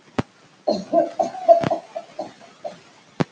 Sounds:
Laughter